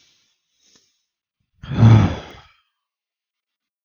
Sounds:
Sigh